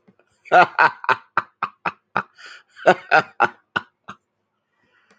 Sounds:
Laughter